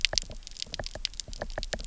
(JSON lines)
{"label": "biophony, knock", "recorder": "SoundTrap 300"}